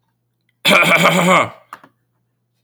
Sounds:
Cough